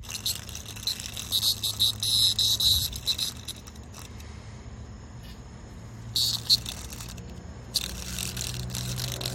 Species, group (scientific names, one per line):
Neocicada hieroglyphica
Cicadidae